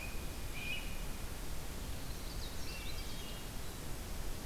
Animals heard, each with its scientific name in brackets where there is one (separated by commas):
Swainson's Thrush (Catharus ustulatus), Blue Jay (Cyanocitta cristata), Canada Warbler (Cardellina canadensis)